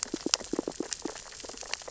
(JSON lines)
{"label": "biophony, sea urchins (Echinidae)", "recorder": "SoundTrap 600 or HydroMoth"}